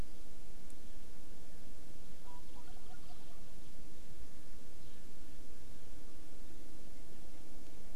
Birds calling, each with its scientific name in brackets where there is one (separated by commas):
Wild Turkey (Meleagris gallopavo)